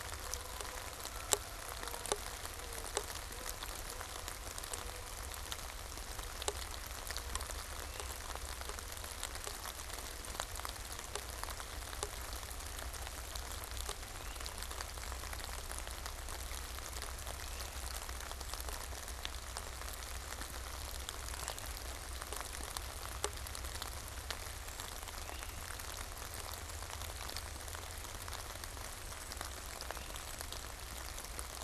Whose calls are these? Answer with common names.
Canada Goose, Great Crested Flycatcher, Brown Creeper